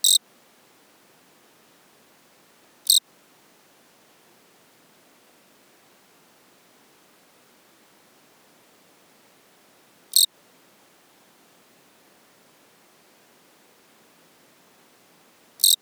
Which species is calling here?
Eugryllodes pipiens